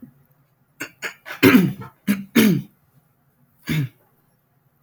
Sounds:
Throat clearing